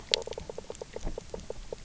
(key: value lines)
label: biophony, knock croak
recorder: SoundTrap 300